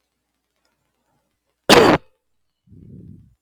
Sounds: Cough